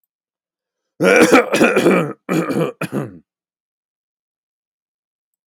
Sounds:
Cough